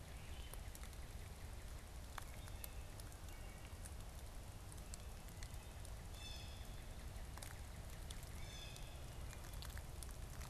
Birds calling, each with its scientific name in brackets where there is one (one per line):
Northern Cardinal (Cardinalis cardinalis)
Blue Jay (Cyanocitta cristata)